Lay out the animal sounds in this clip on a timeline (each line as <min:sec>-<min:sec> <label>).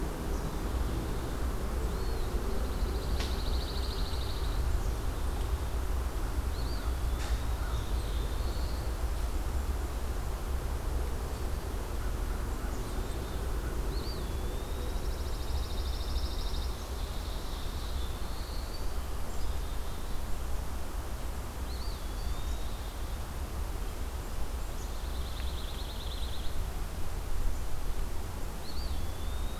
0:01.7-0:02.5 Eastern Wood-Pewee (Contopus virens)
0:02.3-0:04.7 Pine Warbler (Setophaga pinus)
0:06.4-0:07.6 Eastern Wood-Pewee (Contopus virens)
0:07.4-0:08.9 Black-throated Blue Warbler (Setophaga caerulescens)
0:12.6-0:13.5 Black-capped Chickadee (Poecile atricapillus)
0:13.7-0:15.1 Eastern Wood-Pewee (Contopus virens)
0:14.8-0:16.8 Pine Warbler (Setophaga pinus)
0:16.2-0:18.0 Ovenbird (Seiurus aurocapilla)
0:16.9-0:19.0 Black-throated Blue Warbler (Setophaga caerulescens)
0:19.2-0:20.3 Black-capped Chickadee (Poecile atricapillus)
0:21.5-0:22.8 Eastern Wood-Pewee (Contopus virens)
0:24.6-0:26.7 Pine Warbler (Setophaga pinus)
0:28.5-0:29.6 Eastern Wood-Pewee (Contopus virens)